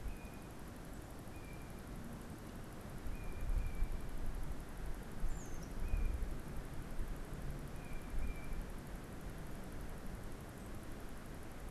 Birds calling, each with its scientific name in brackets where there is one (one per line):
unidentified bird